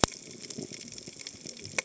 {"label": "biophony, cascading saw", "recorder": "HydroMoth"}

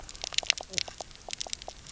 {"label": "biophony, knock croak", "recorder": "SoundTrap 300"}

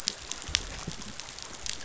{"label": "biophony", "recorder": "SoundTrap 500"}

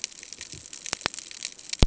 {"label": "ambient", "recorder": "HydroMoth"}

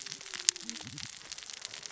{"label": "biophony, cascading saw", "recorder": "SoundTrap 600 or HydroMoth"}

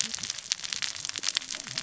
{"label": "biophony, cascading saw", "recorder": "SoundTrap 600 or HydroMoth"}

